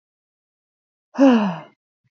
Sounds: Sigh